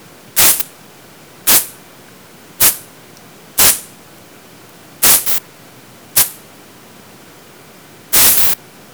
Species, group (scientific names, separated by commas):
Isophya modestior, Orthoptera